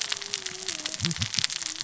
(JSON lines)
{"label": "biophony, cascading saw", "recorder": "SoundTrap 600 or HydroMoth"}